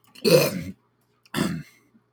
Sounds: Throat clearing